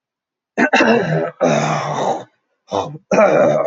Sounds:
Throat clearing